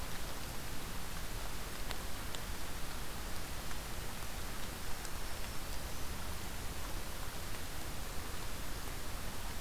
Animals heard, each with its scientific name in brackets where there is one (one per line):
Black-throated Green Warbler (Setophaga virens)